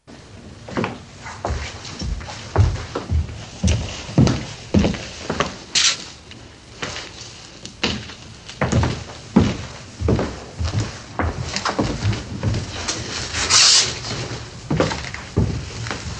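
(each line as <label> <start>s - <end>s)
Footsteps thundering on solid ground. 0.0s - 16.2s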